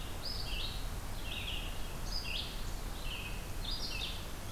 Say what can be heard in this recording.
Red-eyed Vireo, Eastern Wood-Pewee